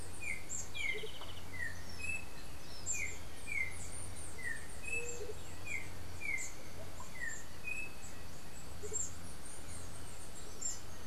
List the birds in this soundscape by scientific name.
Arremon brunneinucha, Icterus chrysater, Momotus aequatorialis, Zimmerius chrysops, Leptotila verreauxi